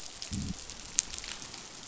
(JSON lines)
{"label": "biophony", "recorder": "SoundTrap 500"}